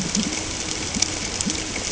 {"label": "ambient", "recorder": "HydroMoth"}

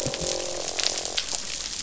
{"label": "biophony, croak", "recorder": "SoundTrap 500"}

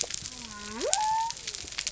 {"label": "biophony", "recorder": "SoundTrap 300"}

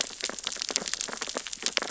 {"label": "biophony, sea urchins (Echinidae)", "recorder": "SoundTrap 600 or HydroMoth"}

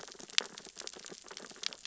{"label": "biophony, sea urchins (Echinidae)", "recorder": "SoundTrap 600 or HydroMoth"}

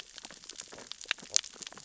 {"label": "biophony, sea urchins (Echinidae)", "recorder": "SoundTrap 600 or HydroMoth"}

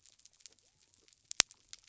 {"label": "biophony", "recorder": "SoundTrap 300"}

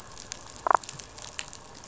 {"label": "biophony, damselfish", "recorder": "SoundTrap 500"}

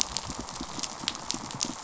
{"label": "biophony, pulse", "recorder": "SoundTrap 500"}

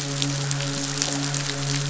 {"label": "biophony, midshipman", "recorder": "SoundTrap 500"}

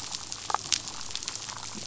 {"label": "biophony, damselfish", "recorder": "SoundTrap 500"}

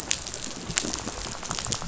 {"label": "biophony, rattle", "recorder": "SoundTrap 500"}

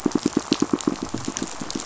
{"label": "biophony, pulse", "recorder": "SoundTrap 500"}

